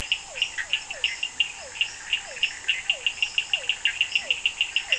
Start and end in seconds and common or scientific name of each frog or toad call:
0.0	4.9	Physalaemus cuvieri
0.4	3.2	Bischoff's tree frog
4.0	4.9	Leptodactylus latrans